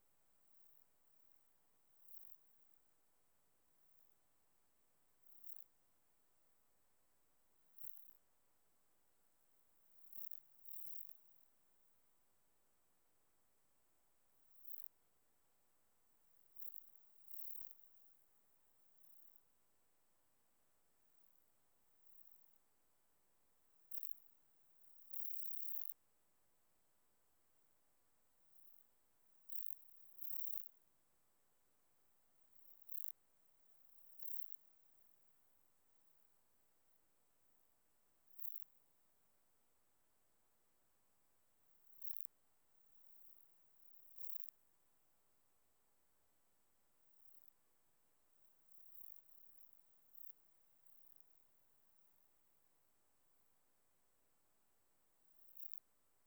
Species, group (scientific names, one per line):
Platycleis iberica
Orthoptera